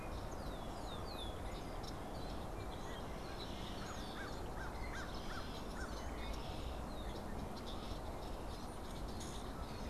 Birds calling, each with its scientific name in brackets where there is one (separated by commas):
Common Grackle (Quiscalus quiscula), Red-winged Blackbird (Agelaius phoeniceus), American Crow (Corvus brachyrhynchos)